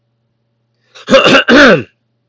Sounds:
Throat clearing